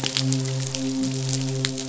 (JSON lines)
{"label": "biophony, midshipman", "recorder": "SoundTrap 500"}